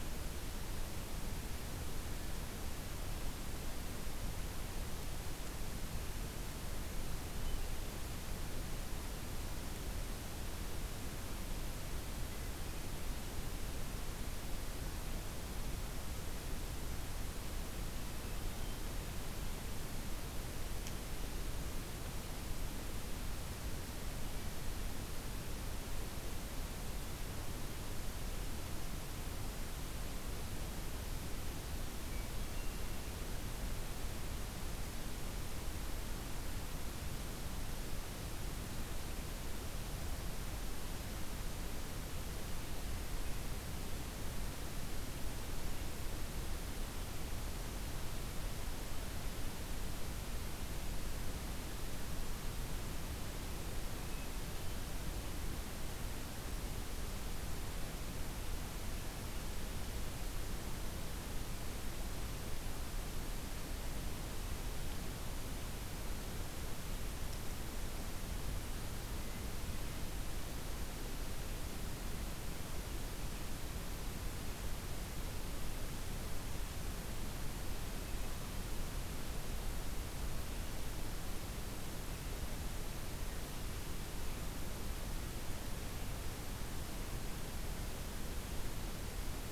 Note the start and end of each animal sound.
[31.91, 33.25] Hermit Thrush (Catharus guttatus)
[53.83, 54.98] Hermit Thrush (Catharus guttatus)

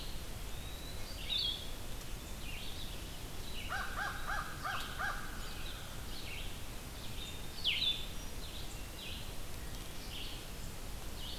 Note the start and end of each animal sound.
[0.00, 1.72] Eastern Wood-Pewee (Contopus virens)
[0.00, 11.39] Red-eyed Vireo (Vireo olivaceus)
[1.23, 1.73] Blue-headed Vireo (Vireo solitarius)
[3.25, 6.61] American Crow (Corvus brachyrhynchos)
[7.46, 8.08] Blue-headed Vireo (Vireo solitarius)

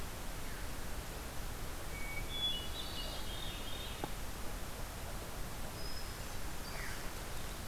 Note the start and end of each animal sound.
[1.73, 3.87] Hermit Thrush (Catharus guttatus)
[5.50, 7.12] Hermit Thrush (Catharus guttatus)
[6.60, 7.11] Veery (Catharus fuscescens)

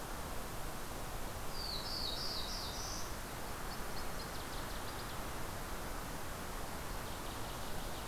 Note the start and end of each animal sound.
[1.29, 3.08] Black-throated Blue Warbler (Setophaga caerulescens)
[3.37, 5.21] Northern Waterthrush (Parkesia noveboracensis)
[6.46, 8.05] Northern Waterthrush (Parkesia noveboracensis)

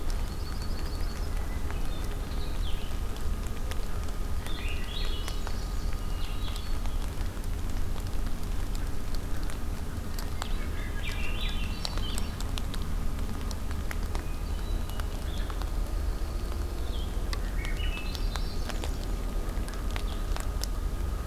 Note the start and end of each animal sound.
[0.00, 1.27] Yellow-rumped Warbler (Setophaga coronata)
[0.00, 6.58] Blue-headed Vireo (Vireo solitarius)
[1.21, 2.24] Hermit Thrush (Catharus guttatus)
[4.42, 6.06] Swainson's Thrush (Catharus ustulatus)
[5.92, 6.97] Hermit Thrush (Catharus guttatus)
[10.28, 10.71] Blue-headed Vireo (Vireo solitarius)
[10.49, 12.46] Swainson's Thrush (Catharus ustulatus)
[13.97, 15.26] Hermit Thrush (Catharus guttatus)
[15.07, 20.30] Blue-headed Vireo (Vireo solitarius)
[15.55, 16.93] Yellow-rumped Warbler (Setophaga coronata)
[17.35, 19.13] Swainson's Thrush (Catharus ustulatus)

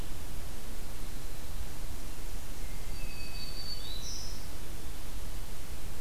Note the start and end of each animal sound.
[2.46, 3.74] Hermit Thrush (Catharus guttatus)
[2.69, 4.51] Black-throated Green Warbler (Setophaga virens)

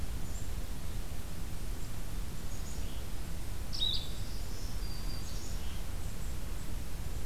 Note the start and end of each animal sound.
[2.26, 3.11] Black-capped Chickadee (Poecile atricapillus)
[3.44, 4.49] Blue-headed Vireo (Vireo solitarius)
[3.68, 4.79] Black-capped Chickadee (Poecile atricapillus)
[4.09, 5.64] Black-throated Green Warbler (Setophaga virens)

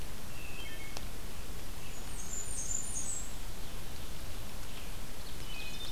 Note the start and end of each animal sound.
[0.29, 1.05] Wood Thrush (Hylocichla mustelina)
[1.58, 5.91] Red-eyed Vireo (Vireo olivaceus)
[1.74, 3.40] Blackburnian Warbler (Setophaga fusca)
[5.14, 5.91] Wood Thrush (Hylocichla mustelina)
[5.21, 5.91] Ovenbird (Seiurus aurocapilla)

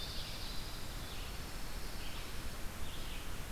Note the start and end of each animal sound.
[0.00, 1.01] Ovenbird (Seiurus aurocapilla)
[0.00, 2.19] Dark-eyed Junco (Junco hyemalis)
[0.00, 3.51] Red-eyed Vireo (Vireo olivaceus)

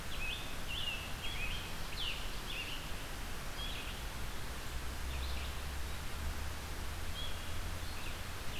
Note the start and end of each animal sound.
[0.00, 3.01] Scarlet Tanager (Piranga olivacea)
[0.00, 8.59] Red-eyed Vireo (Vireo olivaceus)

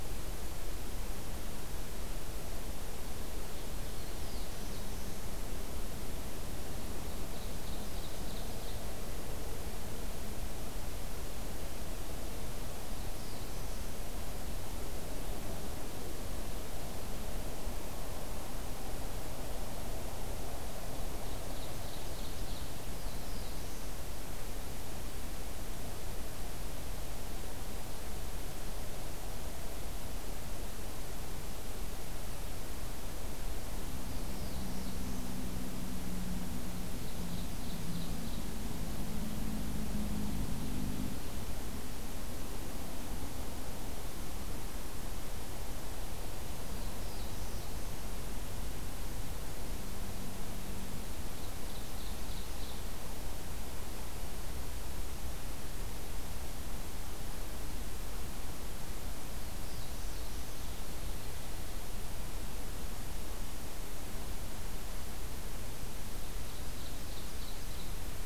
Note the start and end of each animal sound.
[3.73, 5.38] Black-throated Blue Warbler (Setophaga caerulescens)
[6.93, 8.93] Ovenbird (Seiurus aurocapilla)
[12.78, 13.90] Black-throated Blue Warbler (Setophaga caerulescens)
[21.01, 22.80] Ovenbird (Seiurus aurocapilla)
[22.81, 23.96] Black-throated Blue Warbler (Setophaga caerulescens)
[34.08, 35.23] Black-throated Blue Warbler (Setophaga caerulescens)
[36.74, 38.51] Ovenbird (Seiurus aurocapilla)
[46.60, 47.83] Black-throated Blue Warbler (Setophaga caerulescens)
[51.00, 53.02] Ovenbird (Seiurus aurocapilla)
[59.64, 60.72] Black-throated Blue Warbler (Setophaga caerulescens)
[66.07, 68.03] Ovenbird (Seiurus aurocapilla)

